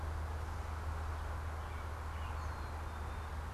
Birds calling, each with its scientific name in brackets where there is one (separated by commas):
Gray Catbird (Dumetella carolinensis), American Robin (Turdus migratorius)